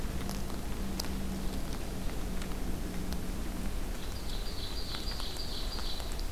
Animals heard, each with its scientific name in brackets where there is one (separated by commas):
Ovenbird (Seiurus aurocapilla)